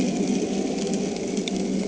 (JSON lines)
{"label": "anthrophony, boat engine", "recorder": "HydroMoth"}